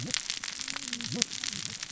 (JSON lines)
{"label": "biophony, cascading saw", "recorder": "SoundTrap 600 or HydroMoth"}